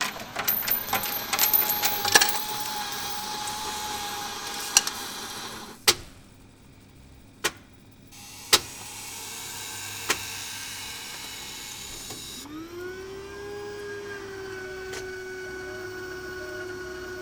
Is there a gun being fired?
no